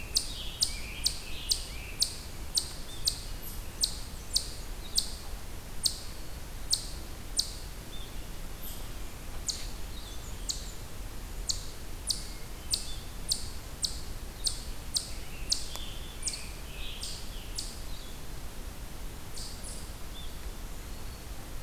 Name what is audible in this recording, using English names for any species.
Scarlet Tanager, Eastern Chipmunk, Brown Creeper, Hermit Thrush, Eastern Wood-Pewee